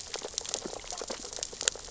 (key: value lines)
label: biophony, sea urchins (Echinidae)
recorder: SoundTrap 600 or HydroMoth